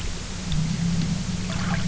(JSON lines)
{"label": "anthrophony, boat engine", "recorder": "SoundTrap 300"}